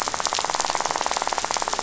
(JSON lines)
{"label": "biophony, rattle", "recorder": "SoundTrap 500"}